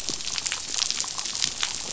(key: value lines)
label: biophony, damselfish
recorder: SoundTrap 500